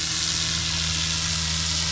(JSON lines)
{"label": "anthrophony, boat engine", "recorder": "SoundTrap 500"}